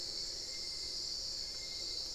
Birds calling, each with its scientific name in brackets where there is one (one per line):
Hauxwell's Thrush (Turdus hauxwelli)
Little Tinamou (Crypturellus soui)